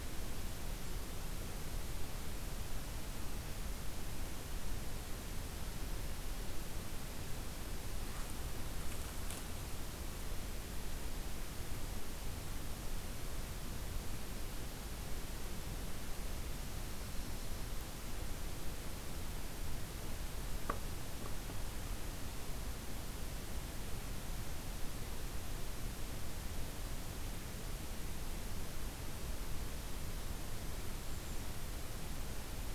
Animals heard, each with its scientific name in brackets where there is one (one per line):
Golden-crowned Kinglet (Regulus satrapa)